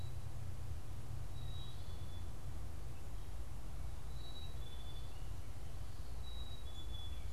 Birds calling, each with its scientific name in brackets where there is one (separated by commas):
Black-capped Chickadee (Poecile atricapillus)